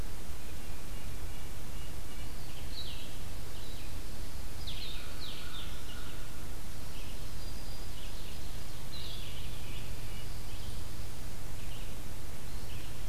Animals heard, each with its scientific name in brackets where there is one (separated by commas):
Red-breasted Nuthatch (Sitta canadensis), Red-eyed Vireo (Vireo olivaceus), Blue-headed Vireo (Vireo solitarius), American Crow (Corvus brachyrhynchos), Ovenbird (Seiurus aurocapilla), Black-throated Green Warbler (Setophaga virens)